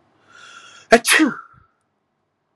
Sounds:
Sneeze